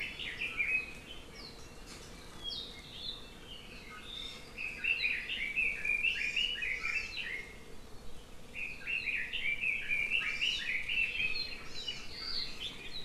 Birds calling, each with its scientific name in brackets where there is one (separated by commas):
Red-billed Leiothrix (Leiothrix lutea), Apapane (Himatione sanguinea), Hawaii Amakihi (Chlorodrepanis virens)